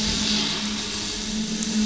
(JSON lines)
{"label": "anthrophony, boat engine", "recorder": "SoundTrap 500"}